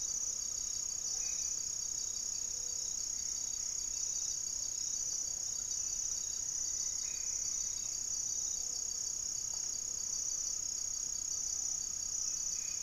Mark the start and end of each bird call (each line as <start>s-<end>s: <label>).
0.0s-1.8s: Great Antshrike (Taraba major)
0.0s-6.5s: Hauxwell's Thrush (Turdus hauxwelli)
0.0s-12.8s: Gray-fronted Dove (Leptotila rufaxilla)
1.0s-1.6s: Black-faced Antthrush (Formicarius analis)
2.8s-3.9s: unidentified bird
5.4s-12.8s: Great Antshrike (Taraba major)
6.0s-8.0s: unidentified bird
6.9s-7.5s: Black-faced Antthrush (Formicarius analis)
12.3s-12.8s: Black-faced Antthrush (Formicarius analis)